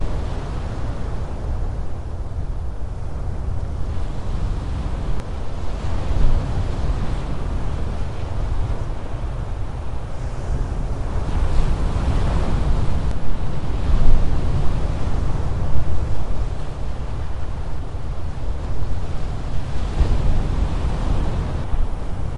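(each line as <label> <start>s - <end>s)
Waves crash against rocks on a coast. 0.0s - 22.4s
Wind is blowing on a coast. 0.1s - 22.4s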